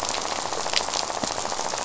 {"label": "biophony, rattle", "recorder": "SoundTrap 500"}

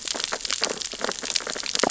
{"label": "biophony, sea urchins (Echinidae)", "recorder": "SoundTrap 600 or HydroMoth"}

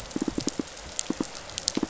{"label": "biophony, pulse", "recorder": "SoundTrap 500"}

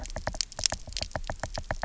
{"label": "biophony, knock", "recorder": "SoundTrap 300"}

